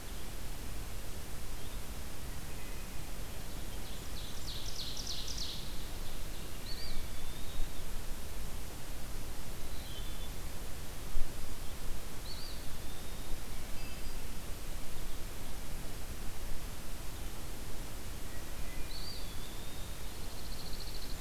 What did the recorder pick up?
Wood Thrush, Ovenbird, Eastern Wood-Pewee, Pine Warbler